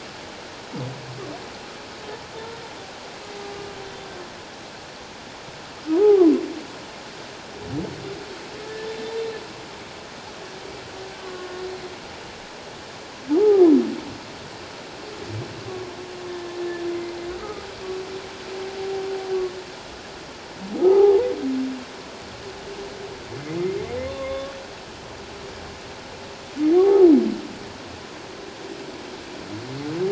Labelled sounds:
6.0	6.3	humpback whale, 0.78 to 1.3 kHz
11.2	11.5	humpback whale, 1.0 to 1.2 kHz
13.4	13.6	humpback whale, 0.78 to 0.91 kHz
15.7	16.0	humpback whale, 0.84 to 1.2 kHz
17.4	17.7	humpback whale, 1.2 to 1.3 kHz
20.8	21.3	humpback whale, 0.78 to 1.3 kHz
24.0	24.5	humpback whale, 0.97 to 3.6 kHz
26.7	27.1	humpback whale, 0.78 to 0.91 kHz

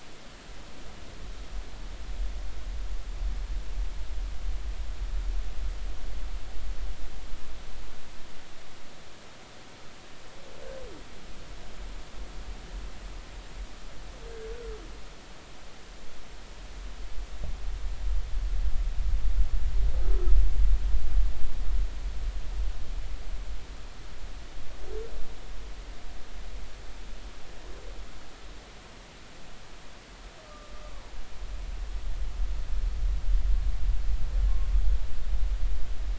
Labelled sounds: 30.5	30.7	humpback whale, 1.2 to 1.3 kHz

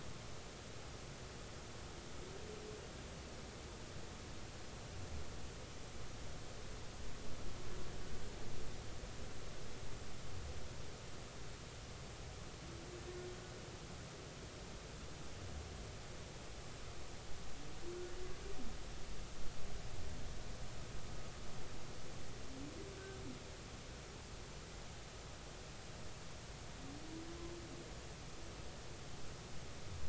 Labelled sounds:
22.9	23.2	humpback whale, 1.5 to 1.6 kHz

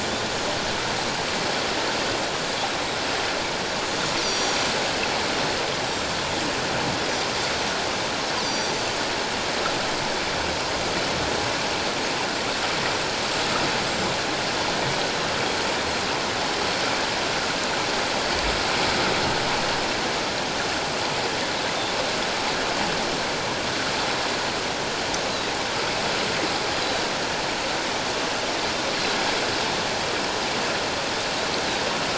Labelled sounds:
4.2	4.7	Pacific white-sided dolphin, 3.4 to 6.2 kHz
5.8	6.2	Pacific white-sided dolphin, 7.1 to 7.8 kHz
8.4	8.7	Pacific white-sided dolphin, 4.5 to 6.0 kHz
13.8	14.1	Pacific white-sided dolphin, 7.2 to 7.9 kHz

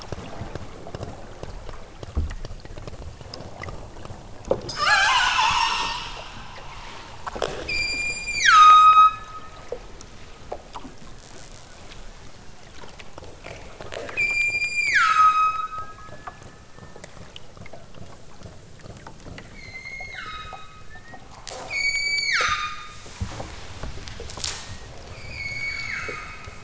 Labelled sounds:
4.7	6.2	killer whale, southern Alaska resident, 0.28 to 8.0 kHz
7.6	9.6	killer whale, southern Alaska resident, 0.97 to 8.0 kHz
14.1	16.2	killer whale, southern Alaska resident, 0.97 to 8.0 kHz
19.5	20.9	killer whale, southern Alaska resident, 1.0 to 8.0 kHz
21.7	23.1	killer whale, southern Alaska resident, 0.92 to 8.0 kHz
25.2	26.6	killer whale, southern Alaska resident, 0.97 to 8.0 kHz

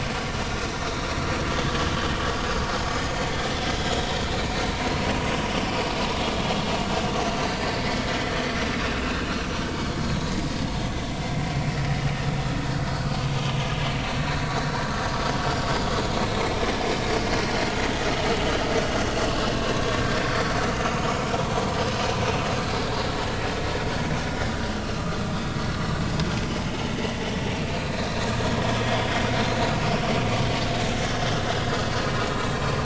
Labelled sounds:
2.8	3.1	vessel noise, 4.9 to 5.2 kHz
4.5	4.8	vessel noise, 3.9 to 4.0 kHz
7.4	7.7	vessel noise, 4.6 to 4.7 kHz
9.0	9.3	vessel noise, 1.4 to 1.7 kHz
12.9	13.5	vessel noise, 1.4 to 3.2 kHz
14.5	14.9	vessel noise, 1.3 to 4.1 kHz
19.7	20.0	vessel noise, 1.0 to 1.2 kHz
25.0	25.6	vessel noise, 1.2 to 3.8 kHz
27.8	28.1	vessel noise, 3.9 to 4.2 kHz
28.8	29.6	vessel noise, 3.2 to 4.2 kHz
32.5	32.8	vessel noise, 2.3 to 2.7 kHz

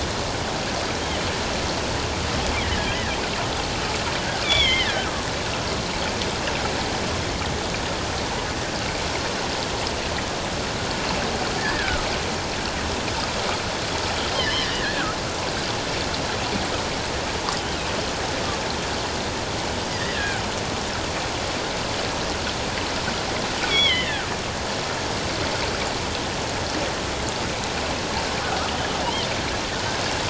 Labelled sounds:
2.6	3.0	killer whale, offshore, 1.6 to 2.0 kHz
4.4	5.1	killer whale, offshore, 1.4 to 3.7 kHz
11.6	12.0	killer whale, offshore, 1.2 to 1.9 kHz
14.3	15.2	killer whale, offshore, 1.2 to 3.3 kHz
19.9	20.4	killer whale, offshore, 1.4 to 2.0 kHz
23.7	24.3	killer whale, offshore, 1.2 to 3.5 kHz
28.4	28.6	killer whale, offshore, 1.2 to 1.6 kHz

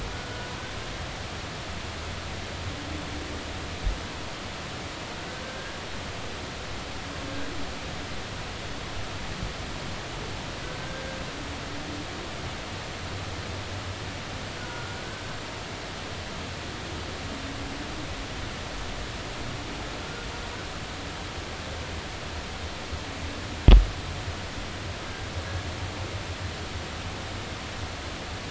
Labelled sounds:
5.4	5.8	humpback whale, 1.5 to 1.7 kHz
10.8	11.2	humpback whale, 1.5 to 1.7 kHz
14.6	15.0	humpback whale, 1.3 to 1.5 kHz
20.0	20.3	humpback whale, 1.4 to 1.7 kHz

